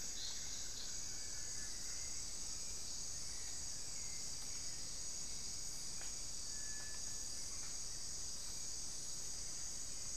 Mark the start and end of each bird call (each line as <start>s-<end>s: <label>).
0.0s-2.4s: Buff-throated Woodcreeper (Xiphorhynchus guttatus)
0.0s-5.2s: Hauxwell's Thrush (Turdus hauxwelli)
6.5s-10.2s: Cinereous Tinamou (Crypturellus cinereus)